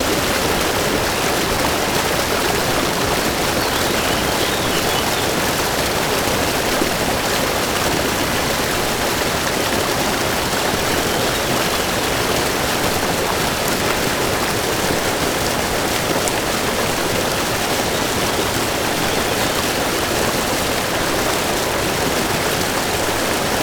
Are cars honking in the background?
no